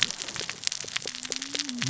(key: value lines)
label: biophony, cascading saw
recorder: SoundTrap 600 or HydroMoth